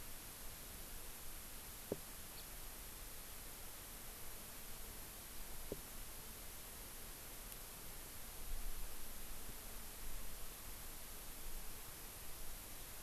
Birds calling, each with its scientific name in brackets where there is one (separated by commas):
House Finch (Haemorhous mexicanus)